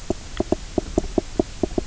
{"label": "biophony, knock croak", "recorder": "SoundTrap 300"}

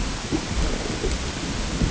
{"label": "ambient", "recorder": "HydroMoth"}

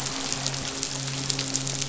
{"label": "biophony, midshipman", "recorder": "SoundTrap 500"}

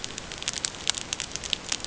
{"label": "ambient", "recorder": "HydroMoth"}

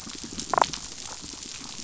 {"label": "biophony, damselfish", "recorder": "SoundTrap 500"}
{"label": "biophony", "recorder": "SoundTrap 500"}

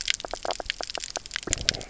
{"label": "biophony, knock croak", "recorder": "SoundTrap 300"}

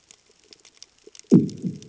{"label": "anthrophony, bomb", "recorder": "HydroMoth"}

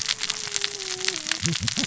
{"label": "biophony, cascading saw", "recorder": "SoundTrap 600 or HydroMoth"}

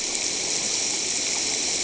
{"label": "ambient", "recorder": "HydroMoth"}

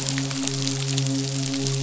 {"label": "biophony, midshipman", "recorder": "SoundTrap 500"}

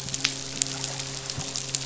{"label": "biophony, midshipman", "recorder": "SoundTrap 500"}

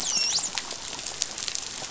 {"label": "biophony, dolphin", "recorder": "SoundTrap 500"}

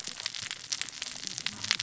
{"label": "biophony, cascading saw", "recorder": "SoundTrap 600 or HydroMoth"}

